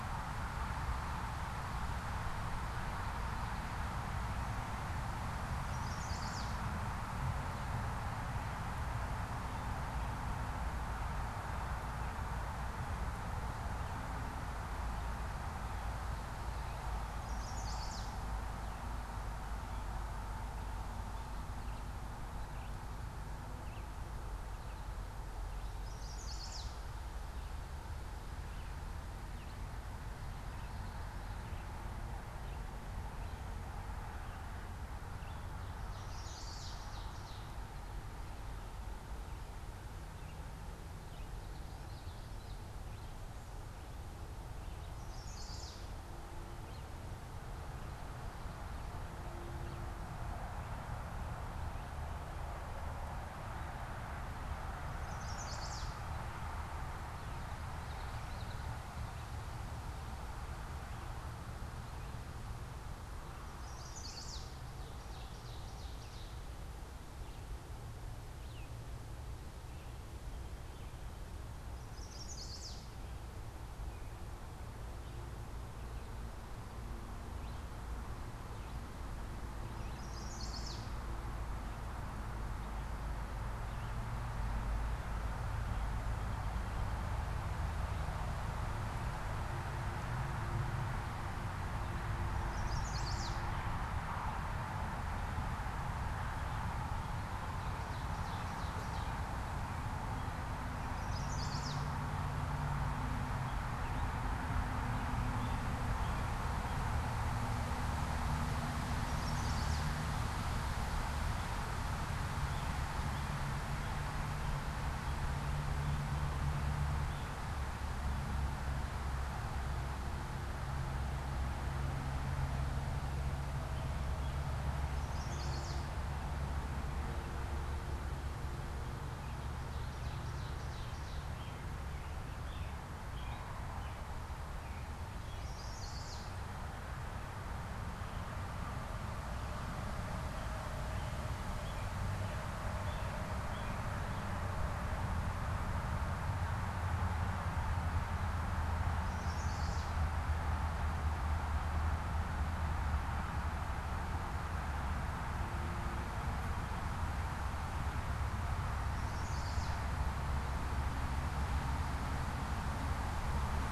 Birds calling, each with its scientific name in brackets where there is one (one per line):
American Robin (Turdus migratorius)
Song Sparrow (Melospiza melodia)
Common Yellowthroat (Geothlypis trichas)
Red-eyed Vireo (Vireo olivaceus)
Chestnut-sided Warbler (Setophaga pensylvanica)
Ovenbird (Seiurus aurocapilla)